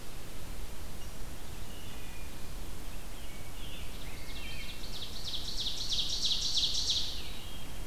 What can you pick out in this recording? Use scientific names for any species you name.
Hylocichla mustelina, Pheucticus ludovicianus, Seiurus aurocapilla